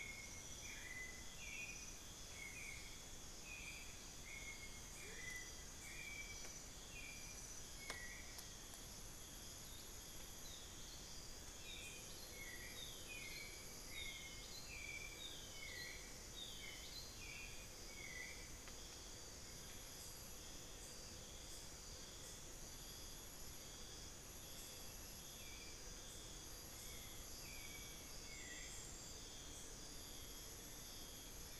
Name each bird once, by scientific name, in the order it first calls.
Turdus hauxwelli, Momotus momota